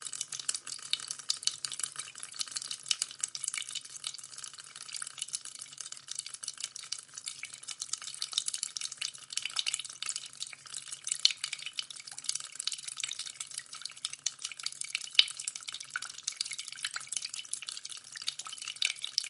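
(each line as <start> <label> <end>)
0.0 A faucet is dripping continuously. 19.3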